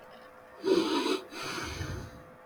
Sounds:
Sigh